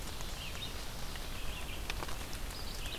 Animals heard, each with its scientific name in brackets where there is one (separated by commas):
Red-eyed Vireo (Vireo olivaceus)